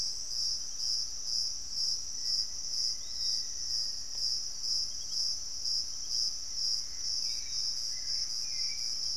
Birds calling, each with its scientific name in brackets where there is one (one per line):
Hauxwell's Thrush (Turdus hauxwelli)
Gray Antbird (Cercomacra cinerascens)
Black-faced Antthrush (Formicarius analis)
Piratic Flycatcher (Legatus leucophaius)